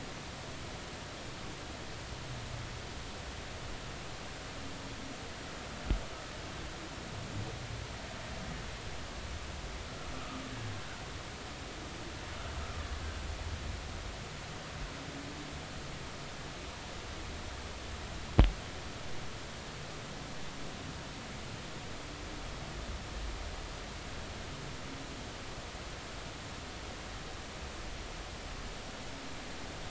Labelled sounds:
10.1	10.4	humpback whale, 1.2 to 1.4 kHz

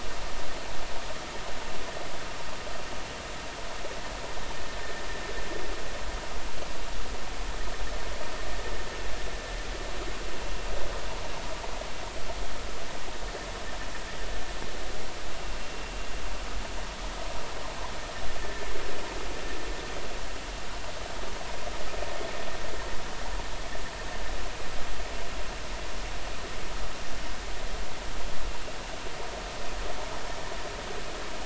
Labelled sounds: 18.4	18.7	vessel noise, 1.7 to 1.9 kHz

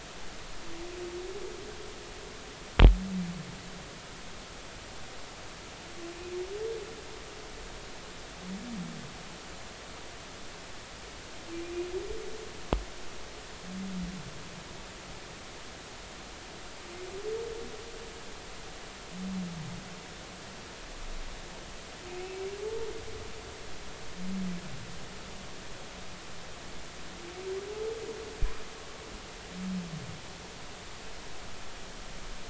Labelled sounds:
22.2	22.5	humpback whale, 2.1 to 2.3 kHz

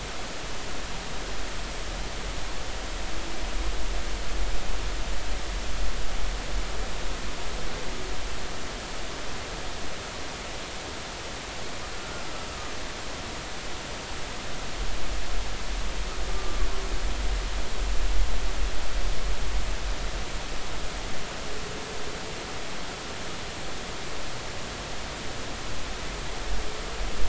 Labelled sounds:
12.0	12.2	humpback whale, 1.3 to 1.4 kHz
16.4	16.7	humpback whale, 1.1 to 1.2 kHz

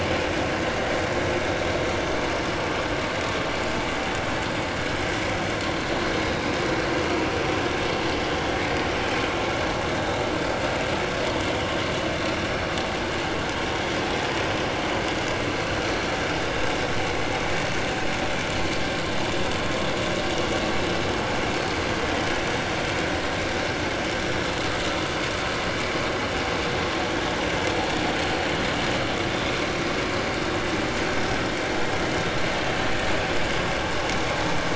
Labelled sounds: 6.4	6.7	vessel noise, 5.3 to 5.5 kHz

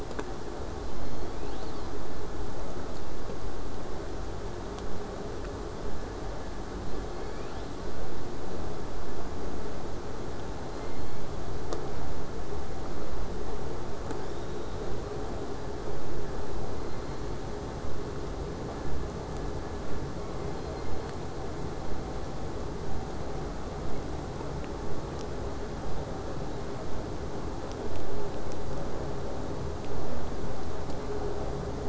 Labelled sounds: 10.7	11.8	killer whale, southern resident, J pod, call S01, 1.8 to 6.0 kHz
14.1	15.0	killer whale, southern resident, J pod, 3.3 to 7.7 kHz
16.6	17.6	killer whale, southern resident, J pod, 1.9 to 4.6 kHz
20.2	21.4	killer whale, southern resident, J pod, 1.8 to 4.5 kHz

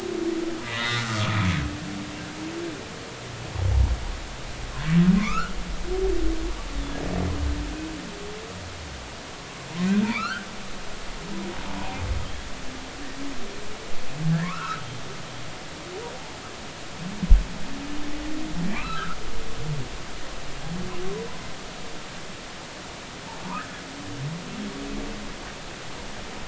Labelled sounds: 1.1	1.6	humpback whale, 2.2 to 3.5 kHz
5.2	5.6	humpback whale, 0.93 to 3.0 kHz
10.0	10.5	humpback whale, 1.1 to 2.9 kHz
14.4	14.8	humpback whale, 0.93 to 2.9 kHz
18.7	19.2	humpback whale, 0.90 to 2.7 kHz
23.4	23.8	humpback whale, 0.86 to 1.8 kHz

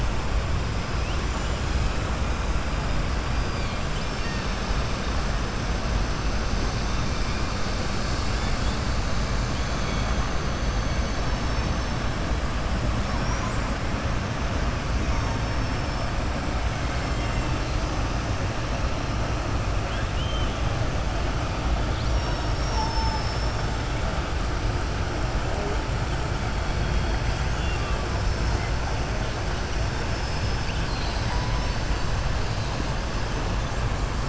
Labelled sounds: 19.8	20.5	killer whale, southern resident, 1.6 to 3.6 kHz
30.0	31.8	killer whale, southern resident, 2.5 to 5.5 kHz

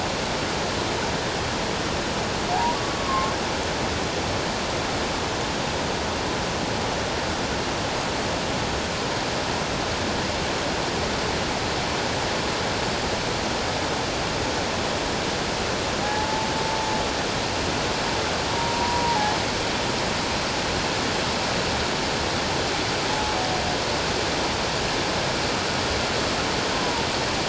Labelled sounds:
2.8	3.3	humpback whale, 1.0 to 1.2 kHz
16.0	16.5	humpback whale, 0.78 to 0.94 kHz
18.5	19.3	humpback whale, 0.78 to 1.0 kHz
26.8	27.1	humpback whale, 0.88 to 1.1 kHz

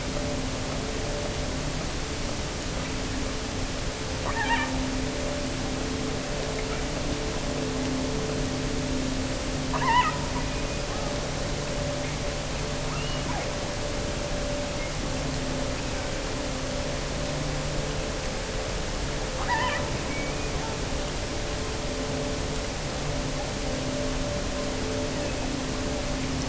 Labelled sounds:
4.2	4.8	killer whale, offshore, 0.57 to 4.0 kHz
9.6	10.2	killer whale, offshore, 0.66 to 3.3 kHz
12.9	13.6	killer whale, offshore, 0.68 to 3.1 kHz
19.3	20.8	killer whale, offshore, 0.68 to 3.4 kHz
25.0	25.6	killer whale, offshore, 1.5 to 3.0 kHz

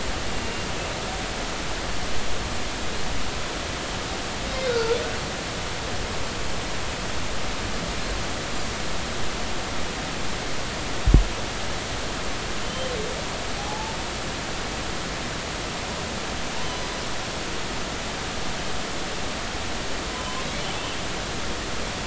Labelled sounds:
4.7	5.0	humpback whale, 1.3 to 1.6 kHz
12.6	12.9	humpback whale, 3.0 to 3.2 kHz
13.6	13.9	humpback whale, 0.80 to 0.93 kHz
16.5	16.9	humpback whale, 0.86 to 6.1 kHz

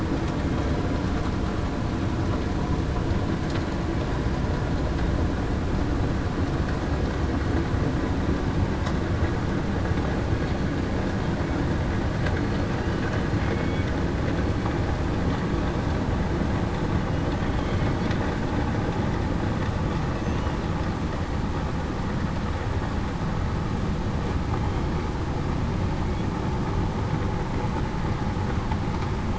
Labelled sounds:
10.3	10.7	killer whale, southern resident, 4.3 to 4.4 kHz
13.4	13.8	killer whale, southern resident, 2.1 to 2.3 kHz

